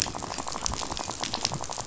{"label": "biophony, rattle", "recorder": "SoundTrap 500"}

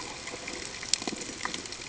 {"label": "ambient", "recorder": "HydroMoth"}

